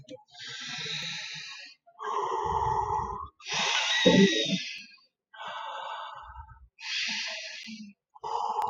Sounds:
Sigh